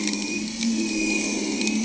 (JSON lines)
{"label": "anthrophony, boat engine", "recorder": "HydroMoth"}